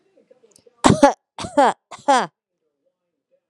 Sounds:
Cough